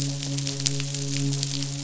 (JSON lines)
{"label": "biophony, midshipman", "recorder": "SoundTrap 500"}